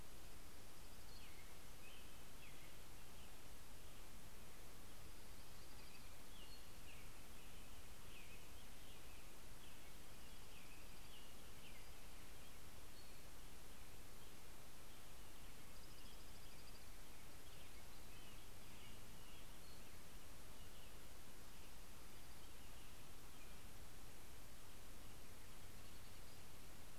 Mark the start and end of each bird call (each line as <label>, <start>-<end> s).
Dark-eyed Junco (Junco hyemalis), 0.0-1.4 s
American Robin (Turdus migratorius), 0.6-4.1 s
Townsend's Solitaire (Myadestes townsendi), 1.0-1.5 s
Dark-eyed Junco (Junco hyemalis), 4.6-6.1 s
American Robin (Turdus migratorius), 5.8-12.9 s
Townsend's Solitaire (Myadestes townsendi), 6.3-7.0 s
Dark-eyed Junco (Junco hyemalis), 9.9-11.3 s
Townsend's Solitaire (Myadestes townsendi), 12.6-13.6 s
American Robin (Turdus migratorius), 15.0-23.9 s
Dark-eyed Junco (Junco hyemalis), 15.4-17.2 s
Townsend's Solitaire (Myadestes townsendi), 19.5-20.2 s
Dark-eyed Junco (Junco hyemalis), 21.2-23.0 s